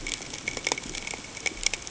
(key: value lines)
label: ambient
recorder: HydroMoth